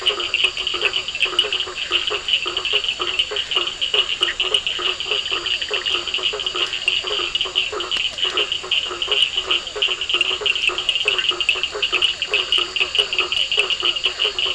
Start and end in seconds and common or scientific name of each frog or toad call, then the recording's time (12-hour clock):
0.0	8.5	Scinax perereca
0.0	14.5	blacksmith tree frog
0.0	14.5	two-colored oval frog
0.0	14.5	Physalaemus cuvieri
0.0	14.5	Cochran's lime tree frog
0.7	2.4	Bischoff's tree frog
4.2	5.9	Bischoff's tree frog
11.1	12.9	Bischoff's tree frog
9:30pm